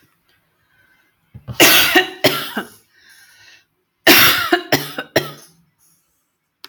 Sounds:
Cough